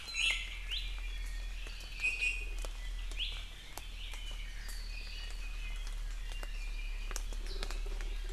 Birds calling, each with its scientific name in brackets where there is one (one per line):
Iiwi (Drepanis coccinea)